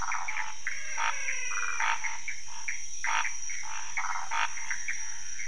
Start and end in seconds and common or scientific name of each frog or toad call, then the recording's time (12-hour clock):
0.0	5.4	Pithecopus azureus
0.7	2.1	menwig frog
0.9	5.4	Scinax fuscovarius
1.5	1.9	waxy monkey tree frog
3.9	4.4	waxy monkey tree frog
2:15am